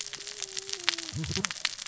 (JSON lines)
{"label": "biophony, cascading saw", "recorder": "SoundTrap 600 or HydroMoth"}